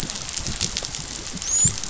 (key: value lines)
label: biophony, dolphin
recorder: SoundTrap 500